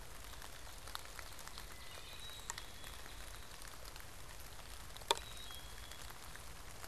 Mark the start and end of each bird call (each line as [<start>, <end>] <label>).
[1.90, 3.30] Black-capped Chickadee (Poecile atricapillus)
[5.00, 6.20] Black-capped Chickadee (Poecile atricapillus)